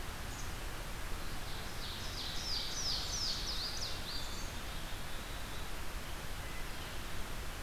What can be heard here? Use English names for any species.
Black-capped Chickadee, Ovenbird, Louisiana Waterthrush